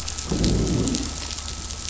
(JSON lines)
{"label": "biophony, growl", "recorder": "SoundTrap 500"}